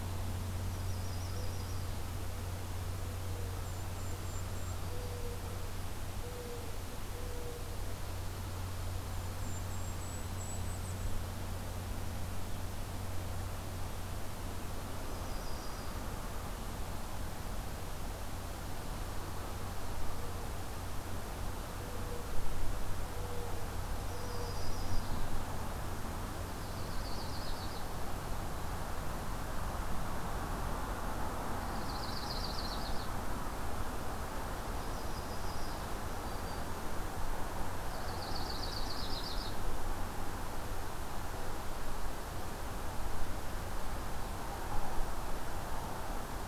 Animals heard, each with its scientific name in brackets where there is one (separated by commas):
Mourning Dove (Zenaida macroura), Yellow-rumped Warbler (Setophaga coronata), Black-throated Green Warbler (Setophaga virens), Golden-crowned Kinglet (Regulus satrapa)